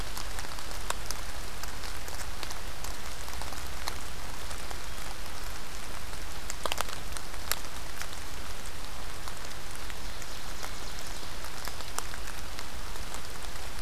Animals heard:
Ovenbird (Seiurus aurocapilla)

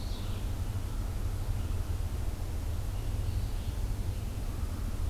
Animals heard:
Red-eyed Vireo (Vireo olivaceus)

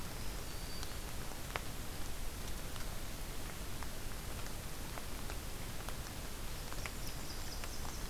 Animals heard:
Black-throated Green Warbler (Setophaga virens)
Blackburnian Warbler (Setophaga fusca)

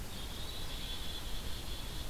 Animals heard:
Black-capped Chickadee (Poecile atricapillus)

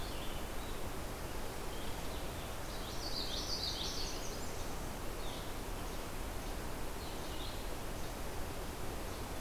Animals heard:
Blue-headed Vireo (Vireo solitarius)
Common Yellowthroat (Geothlypis trichas)

